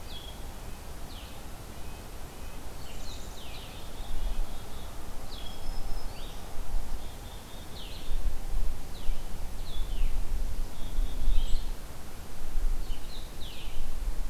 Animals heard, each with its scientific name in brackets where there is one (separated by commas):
Blue-headed Vireo (Vireo solitarius), Black-throated Green Warbler (Setophaga virens), Black-capped Chickadee (Poecile atricapillus), Red-breasted Nuthatch (Sitta canadensis)